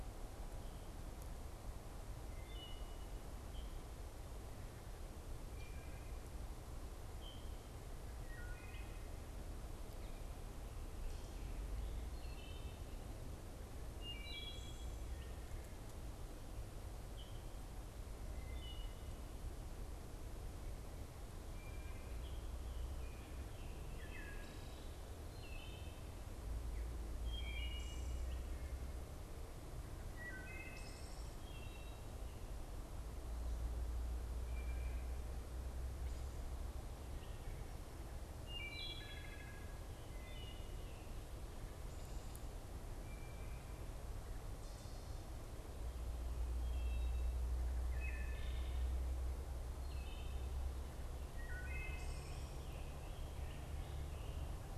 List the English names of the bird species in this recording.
Wood Thrush, Scarlet Tanager